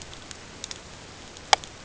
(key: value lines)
label: ambient
recorder: HydroMoth